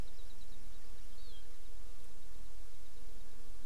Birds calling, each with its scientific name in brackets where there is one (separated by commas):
Hawaii Amakihi (Chlorodrepanis virens)